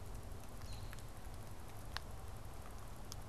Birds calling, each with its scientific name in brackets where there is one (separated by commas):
American Robin (Turdus migratorius)